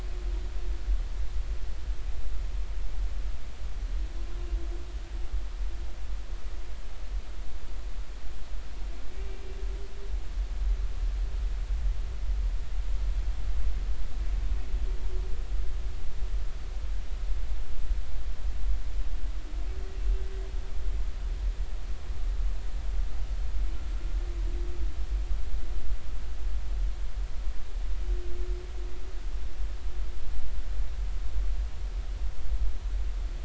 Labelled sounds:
20.0	20.2	humpback whale, 2.7 to 2.8 kHz

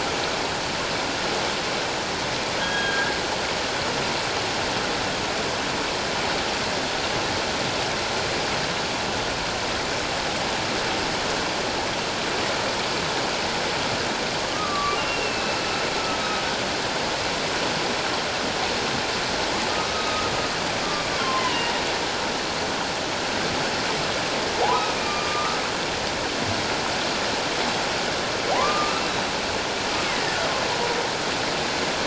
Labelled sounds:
2.6	3.1	humpback whale, 1.6 to 3.3 kHz
14.5	15.6	humpback whale, 1.1 to 2.9 kHz
19.9	21.7	humpback whale, 0.91 to 3.0 kHz
25.0	25.6	humpback whale, 1.1 to 1.3 kHz
28.6	29.0	humpback whale, 0.94 to 1.4 kHz
30.0	30.4	humpback whale, 1.7 to 2.2 kHz

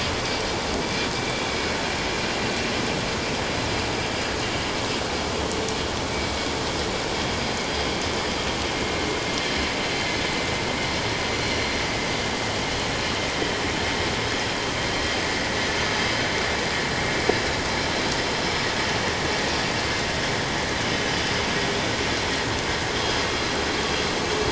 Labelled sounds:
1.5	1.8	vessel noise, 2.2 to 2.5 kHz

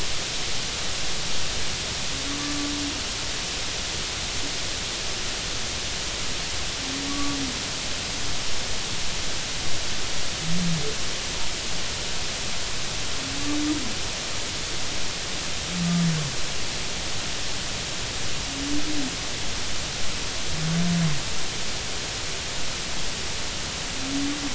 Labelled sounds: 7.1	7.4	humpback whale, 1.1 to 1.2 kHz

